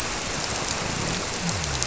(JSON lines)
{"label": "biophony", "recorder": "SoundTrap 300"}